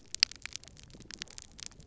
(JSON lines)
{"label": "biophony", "recorder": "SoundTrap 300"}